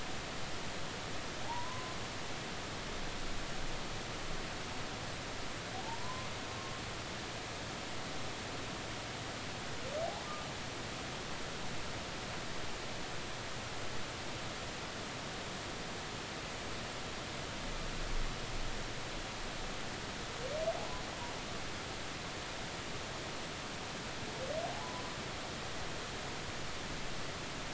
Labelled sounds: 1.4	1.9	humpback whale, 0.80 to 1.1 kHz
5.8	6.3	humpback whale, 0.83 to 1.1 kHz

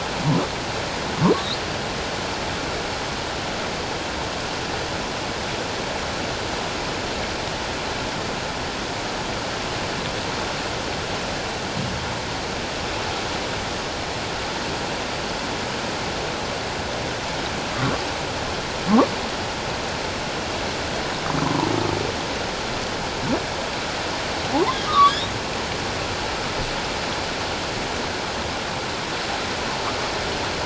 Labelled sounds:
24.5	25.3	humpback whale, 0.78 to 4.0 kHz

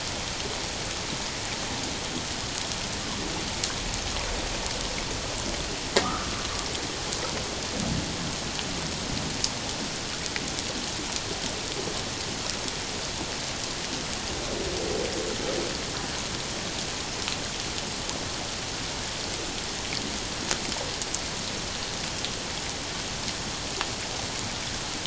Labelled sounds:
6.0	6.3	humpback whale, 1.1 to 1.4 kHz

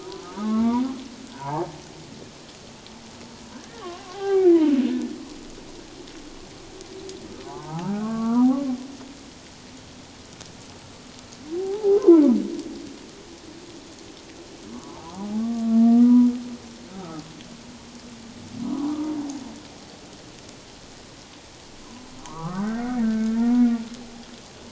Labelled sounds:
0.0	0.8	humpback whale, 0.88 to 2.2 kHz
1.3	1.7	humpback whale, 0.78 to 1.3 kHz
3.5	4.6	humpback whale, 0.78 to 2.4 kHz
7.4	8.6	humpback whale, 0.78 to 1.7 kHz
11.5	12.3	humpback whale, 0.78 to 1.1 kHz
14.7	16.3	humpback whale, 0.78 to 1.3 kHz
18.7	19.0	humpback whale, 0.91 to 1.2 kHz
22.2	23.8	humpback whale, 0.91 to 2.3 kHz

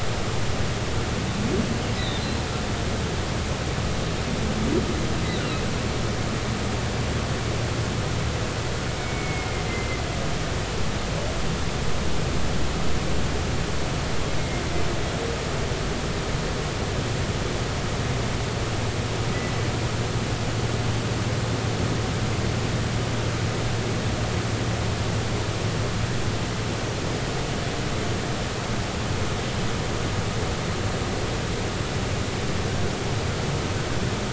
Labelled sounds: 2.0	2.2	humpback whale, 3.5 to 4.1 kHz
5.4	5.6	humpback whale, 1.2 to 1.5 kHz
8.9	10.0	humpback whale, 2.0 to 2.3 kHz

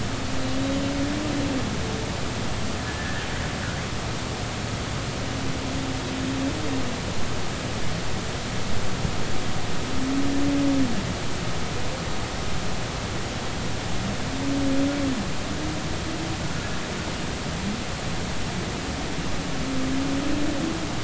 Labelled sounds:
2.9	3.2	humpback whale, 1.6 to 1.9 kHz

